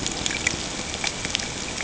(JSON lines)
{"label": "ambient", "recorder": "HydroMoth"}